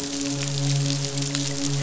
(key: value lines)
label: biophony, midshipman
recorder: SoundTrap 500